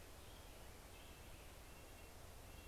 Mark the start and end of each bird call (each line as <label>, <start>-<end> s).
Red-breasted Nuthatch (Sitta canadensis), 0.0-2.7 s